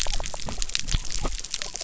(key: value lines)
label: biophony
recorder: SoundTrap 300